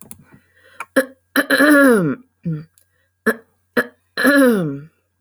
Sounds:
Throat clearing